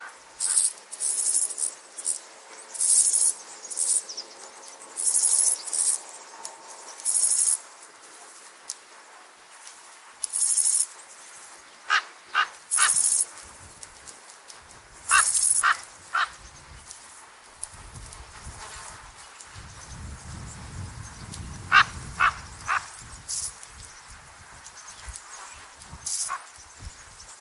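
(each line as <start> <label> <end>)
0.3 Cicadas chirping. 7.7
10.1 Cicadas chirping. 10.9
11.8 A magpie chirps. 13.3
12.6 Cicadas chirping. 13.4
14.9 A magpie chirps. 16.4
15.0 Cicadas chirping. 15.9
21.6 A magpie chirps. 23.1
23.2 Cicadas chirping. 23.6
26.0 Cicadas chirping. 26.4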